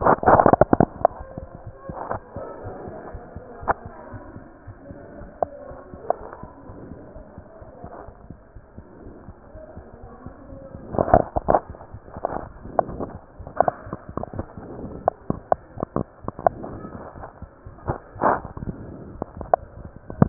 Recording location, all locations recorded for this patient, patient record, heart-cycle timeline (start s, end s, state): aortic valve (AV)
aortic valve (AV)+pulmonary valve (PV)+tricuspid valve (TV)+mitral valve (MV)
#Age: Child
#Sex: Male
#Height: 101.0 cm
#Weight: 18.5 kg
#Pregnancy status: False
#Murmur: Absent
#Murmur locations: nan
#Most audible location: nan
#Systolic murmur timing: nan
#Systolic murmur shape: nan
#Systolic murmur grading: nan
#Systolic murmur pitch: nan
#Systolic murmur quality: nan
#Diastolic murmur timing: nan
#Diastolic murmur shape: nan
#Diastolic murmur grading: nan
#Diastolic murmur pitch: nan
#Diastolic murmur quality: nan
#Outcome: Abnormal
#Campaign: 2015 screening campaign
0.00	2.60	unannotated
2.60	2.73	S1
2.73	2.84	systole
2.84	2.93	S2
2.93	3.12	diastole
3.12	3.20	S1
3.20	3.33	systole
3.33	3.41	S2
3.41	3.58	diastole
3.58	3.71	S1
3.71	3.82	systole
3.82	3.91	S2
3.91	4.10	diastole
4.10	4.21	S1
4.21	4.33	systole
4.33	4.40	S2
4.40	4.65	diastole
4.65	4.75	S1
4.75	4.88	systole
4.88	4.95	S2
4.95	5.18	diastole
5.18	5.29	S1
5.29	5.41	systole
5.41	5.49	S2
5.49	5.69	diastole
5.69	5.79	S1
5.79	5.91	systole
5.91	5.99	S2
5.99	6.18	diastole
6.18	6.27	S1
6.27	6.40	systole
6.40	6.48	S2
6.48	6.67	diastole
6.67	6.76	S1
6.76	6.89	systole
6.89	6.95	S2
6.95	7.14	diastole
7.14	7.23	S1
7.23	7.35	systole
7.35	7.43	S2
7.43	7.60	diastole
7.60	7.67	S1
7.67	20.29	unannotated